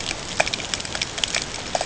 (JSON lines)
{"label": "ambient", "recorder": "HydroMoth"}